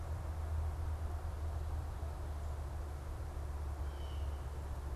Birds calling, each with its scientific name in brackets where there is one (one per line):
Blue Jay (Cyanocitta cristata)